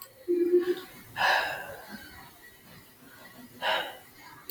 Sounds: Sigh